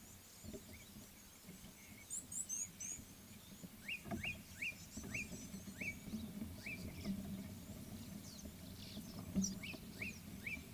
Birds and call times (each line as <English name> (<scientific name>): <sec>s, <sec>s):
Red-cheeked Cordonbleu (Uraeginthus bengalus): 2.4s
Slate-colored Boubou (Laniarius funebris): 5.2s